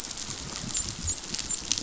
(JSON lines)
{"label": "biophony, dolphin", "recorder": "SoundTrap 500"}